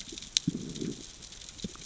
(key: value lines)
label: biophony, growl
recorder: SoundTrap 600 or HydroMoth